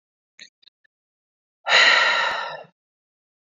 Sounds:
Sigh